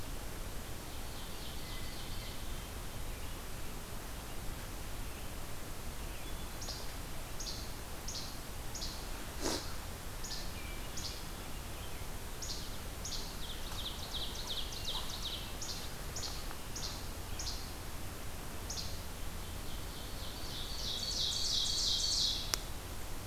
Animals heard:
Hermit Thrush (Catharus guttatus)
Least Flycatcher (Empidonax minimus)
Ovenbird (Seiurus aurocapilla)

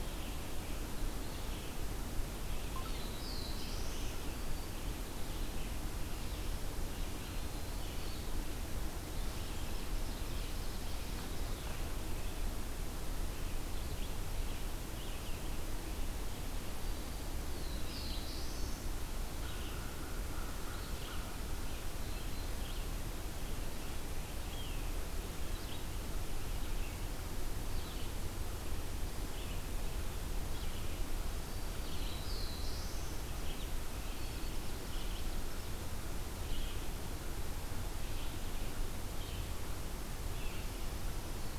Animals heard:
Red-eyed Vireo (Vireo olivaceus)
American Crow (Corvus brachyrhynchos)
Black-throated Blue Warbler (Setophaga caerulescens)
Ovenbird (Seiurus aurocapilla)

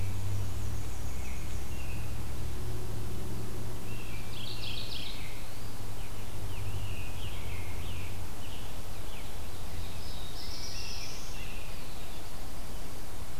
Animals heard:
Black-and-white Warbler (Mniotilta varia)
American Robin (Turdus migratorius)
Scarlet Tanager (Piranga olivacea)
Mourning Warbler (Geothlypis philadelphia)
Black-throated Blue Warbler (Setophaga caerulescens)

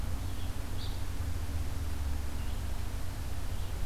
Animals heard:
Red-eyed Vireo (Vireo olivaceus)
Evening Grosbeak (Coccothraustes vespertinus)

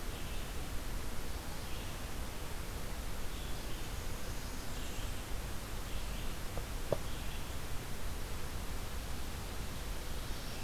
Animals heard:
Red-eyed Vireo (Vireo olivaceus)
Blackburnian Warbler (Setophaga fusca)

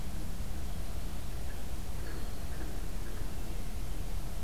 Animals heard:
Red-winged Blackbird (Agelaius phoeniceus)

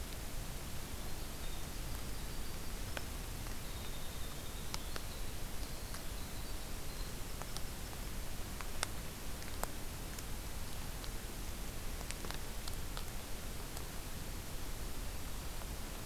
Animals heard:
Winter Wren (Troglodytes hiemalis)

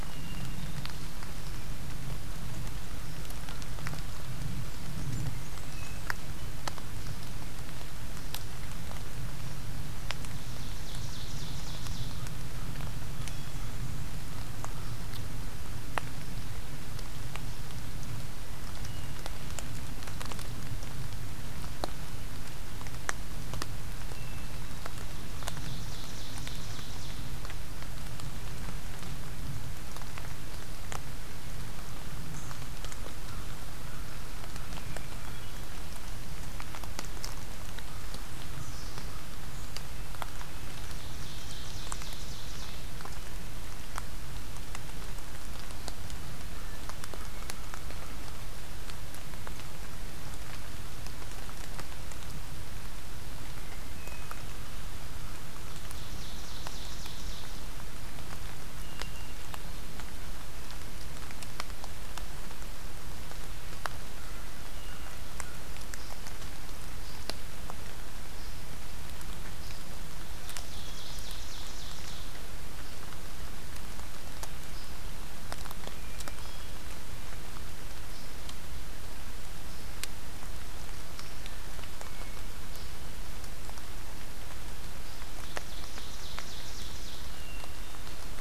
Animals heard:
Hermit Thrush (Catharus guttatus)
Red-breasted Nuthatch (Sitta canadensis)
American Crow (Corvus brachyrhynchos)
Blackburnian Warbler (Setophaga fusca)
Ovenbird (Seiurus aurocapilla)

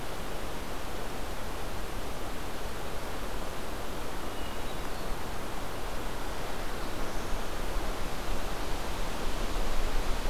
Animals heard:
Hermit Thrush (Catharus guttatus)
Black-throated Blue Warbler (Setophaga caerulescens)

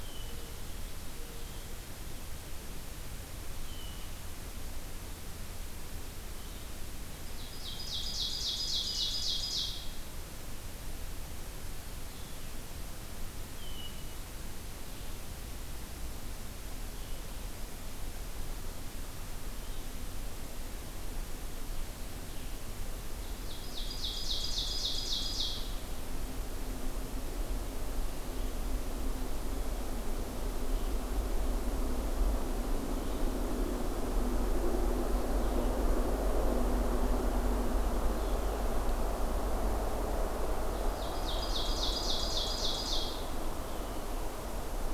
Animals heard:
Mourning Dove (Zenaida macroura)
Ovenbird (Seiurus aurocapilla)
Blue-headed Vireo (Vireo solitarius)
Hermit Thrush (Catharus guttatus)

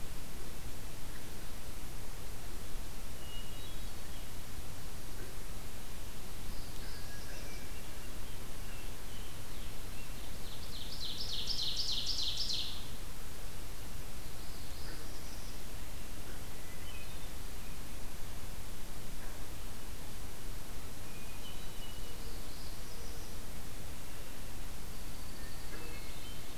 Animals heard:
Scarlet Tanager (Piranga olivacea)
Hermit Thrush (Catharus guttatus)
Northern Parula (Setophaga americana)
Ovenbird (Seiurus aurocapilla)
Downy Woodpecker (Dryobates pubescens)

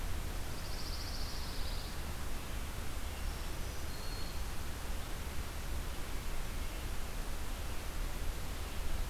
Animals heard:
Pine Warbler (Setophaga pinus)
Black-throated Green Warbler (Setophaga virens)

